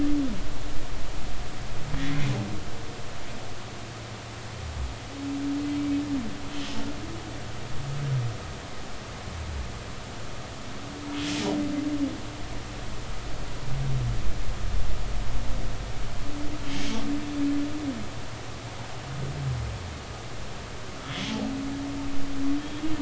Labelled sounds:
21.0	21.3	humpback whale, 3.2 to 3.5 kHz
22.6	22.8	humpback whale, 3.2 to 3.4 kHz

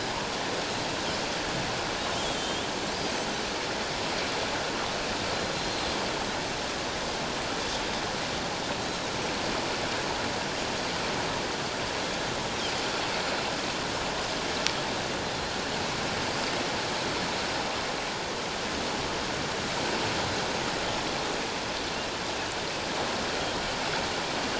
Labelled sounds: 2.3	3.2	Pacific white-sided dolphin, 3.0 to 4.9 kHz
5.5	5.8	Pacific white-sided dolphin, 4.0 to 4.3 kHz
8.8	9.1	Pacific white-sided dolphin, 3.8 to 4.1 kHz

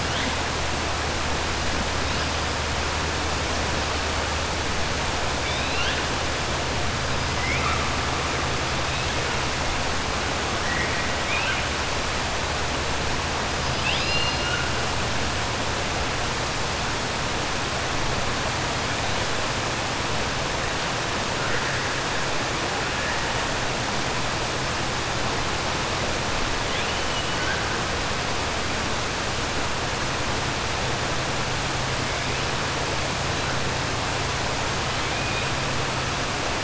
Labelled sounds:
5.4	6.0	killer whale, 1.4 to 4.4 kHz
11.2	11.6	killer whale, 1.4 to 3.7 kHz
13.7	14.7	killer whale, 1.4 to 5.0 kHz
26.6	27.6	killer whale, 1.5 to 3.6 kHz
34.9	35.5	killer whale, 2.2 to 3.1 kHz

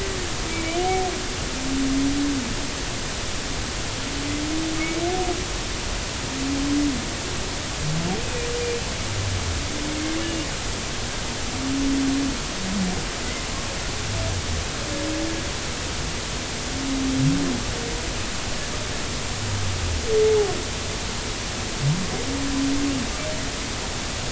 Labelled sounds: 0.5	0.8	humpback whale, 2.2 to 2.4 kHz
8.2	8.5	humpback whale, 2.3 to 2.6 kHz

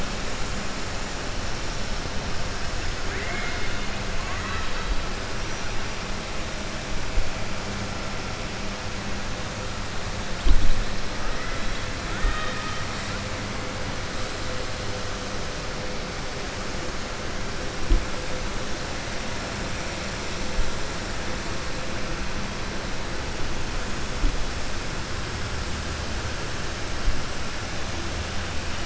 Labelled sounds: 3.0	3.9	killer whale, 0.70 to 4.3 kHz
12.0	12.8	killer whale, 0.61 to 3.8 kHz

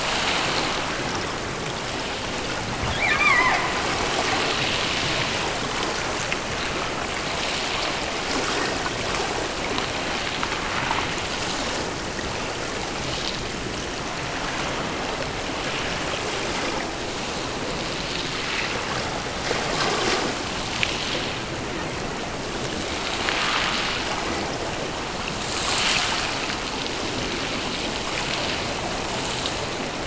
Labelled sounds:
2.9	3.8	killer whale, offshore, 0.45 to 5.5 kHz

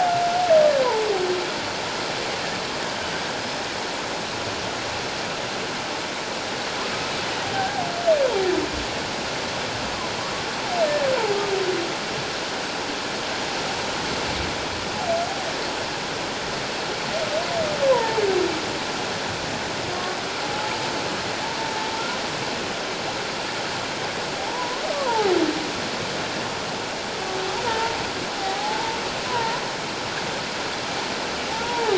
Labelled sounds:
7.6	7.8	humpback whale, 1.5 to 1.7 kHz
17.9	18.2	humpback whale, 0.78 to 1.1 kHz
19.9	20.7	humpback whale, 0.78 to 1.2 kHz
24.4	25.3	humpback whale, 0.78 to 1.2 kHz
27.6	29.0	humpback whale, 0.78 to 1.0 kHz
29.3	29.6	humpback whale, 0.88 to 1.1 kHz
31.5	31.9	humpback whale, 0.78 to 1.0 kHz

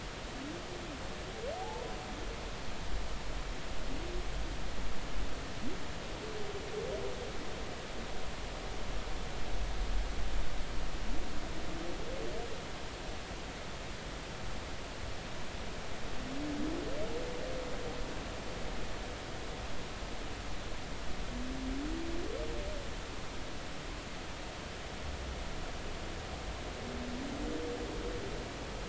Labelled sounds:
1.6	1.9	humpback whale, 0.80 to 1.0 kHz

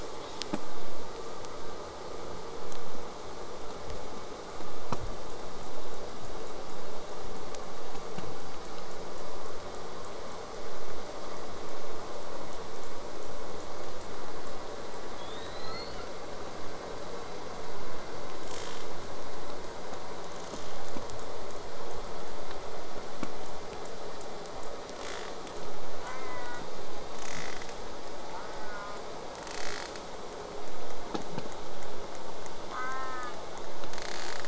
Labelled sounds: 15.2	16.1	killer whale, southern resident, J pod, 1.2 to 8.0 kHz
18.5	18.9	killer whale, southern resident, J pod, rasp, 0.31 to 8.0 kHz
20.3	20.8	killer whale, southern resident, J pod, rasp, 0.23 to 8.0 kHz
25.0	25.3	killer whale, southern resident, J pod, rasp, 0.27 to 8.0 kHz
26.0	26.6	killer whale, southern resident, J pod, call S04, 0.69 to 2.9 kHz
27.2	27.7	killer whale, southern resident, J pod, rasp, 0.12 to 8.0 kHz
28.3	29.0	killer whale, southern resident, J pod, call S04, 0.54 to 2.2 kHz
29.4	30.0	killer whale, southern resident, J pod, rasp, 0.27 to 8.0 kHz
32.7	33.3	killer whale, southern resident, J pod, call S04, 0.81 to 2.4 kHz
33.9	34.4	killer whale, southern resident, J pod, rasp, 0.39 to 8.0 kHz

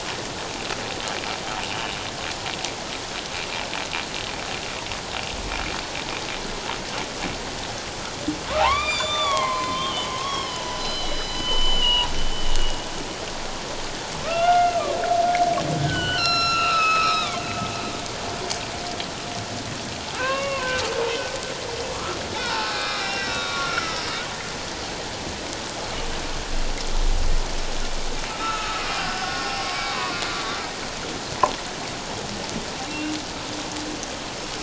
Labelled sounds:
8.6	12.8	humpback whale, 0.78 to 7.3 kHz
14.2	14.8	humpback whale, 1.1 to 2.9 kHz
15.8	17.5	humpback whale, 1.0 to 7.0 kHz
20.2	20.8	humpback whale, 0.97 to 2.8 kHz
21.9	24.0	humpback whale, 1.0 to 5.7 kHz
28.3	30.2	humpback whale, 0.94 to 2.6 kHz
32.8	33.1	humpback whale, 2.7 to 2.8 kHz

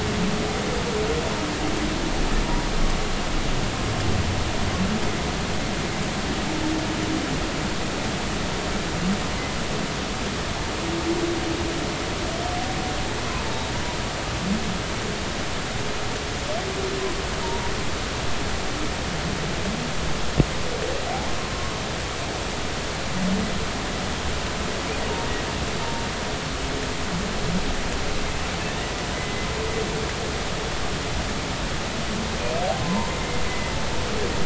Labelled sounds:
17.4	17.7	humpback whale, 0.86 to 0.99 kHz
21.0	21.3	humpback whale, 0.80 to 0.96 kHz
29.1	29.5	humpback whale, 2.0 to 2.1 kHz
32.8	33.1	humpback whale, 0.86 to 1.1 kHz

